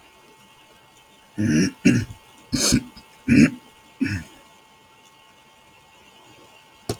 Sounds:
Throat clearing